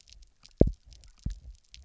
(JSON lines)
{"label": "biophony, double pulse", "recorder": "SoundTrap 300"}